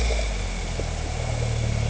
{"label": "anthrophony, boat engine", "recorder": "HydroMoth"}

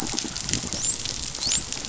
{"label": "biophony, dolphin", "recorder": "SoundTrap 500"}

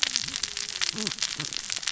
{"label": "biophony, cascading saw", "recorder": "SoundTrap 600 or HydroMoth"}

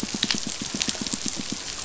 {"label": "biophony, pulse", "recorder": "SoundTrap 500"}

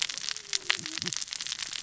{"label": "biophony, cascading saw", "recorder": "SoundTrap 600 or HydroMoth"}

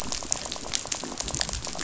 {"label": "biophony, rattle", "recorder": "SoundTrap 500"}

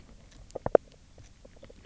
{"label": "biophony, knock croak", "recorder": "SoundTrap 300"}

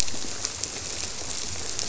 {"label": "biophony", "recorder": "SoundTrap 300"}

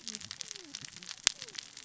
{"label": "biophony, cascading saw", "recorder": "SoundTrap 600 or HydroMoth"}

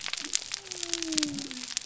{"label": "biophony", "recorder": "SoundTrap 300"}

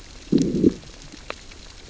{"label": "biophony, growl", "recorder": "SoundTrap 600 or HydroMoth"}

